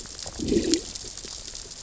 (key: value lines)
label: biophony, growl
recorder: SoundTrap 600 or HydroMoth